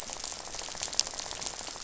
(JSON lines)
{"label": "biophony, rattle", "recorder": "SoundTrap 500"}